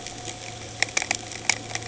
{"label": "anthrophony, boat engine", "recorder": "HydroMoth"}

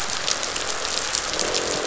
{"label": "biophony, croak", "recorder": "SoundTrap 500"}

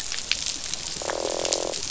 {"label": "biophony, croak", "recorder": "SoundTrap 500"}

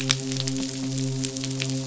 {"label": "biophony, midshipman", "recorder": "SoundTrap 500"}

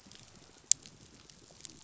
{"label": "biophony", "recorder": "SoundTrap 500"}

